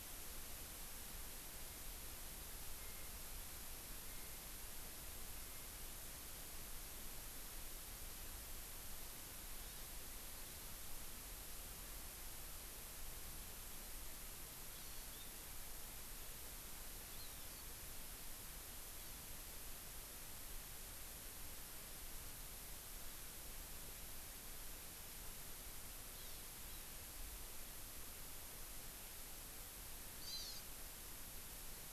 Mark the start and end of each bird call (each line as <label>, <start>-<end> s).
Hawaii Amakihi (Chlorodrepanis virens), 14.7-15.3 s
Hawaii Amakihi (Chlorodrepanis virens), 17.1-17.7 s
Hawaii Amakihi (Chlorodrepanis virens), 19.0-19.3 s
Hawaii Amakihi (Chlorodrepanis virens), 26.2-26.9 s
Hawaii Amakihi (Chlorodrepanis virens), 30.2-30.6 s